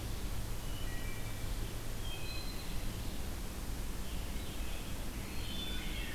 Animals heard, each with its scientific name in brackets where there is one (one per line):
Scarlet Tanager (Piranga olivacea)
Wood Thrush (Hylocichla mustelina)